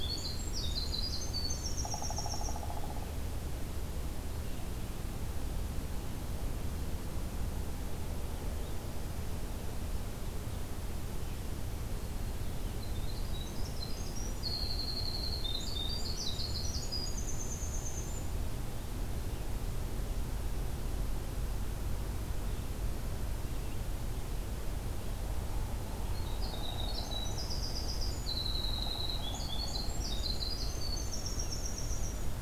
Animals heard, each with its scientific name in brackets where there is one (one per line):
Winter Wren (Troglodytes hiemalis)
Hairy Woodpecker (Dryobates villosus)
Pileated Woodpecker (Dryocopus pileatus)